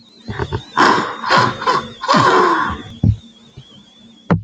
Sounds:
Sneeze